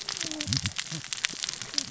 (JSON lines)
{"label": "biophony, cascading saw", "recorder": "SoundTrap 600 or HydroMoth"}